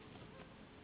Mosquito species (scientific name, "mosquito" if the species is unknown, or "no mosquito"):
Anopheles gambiae s.s.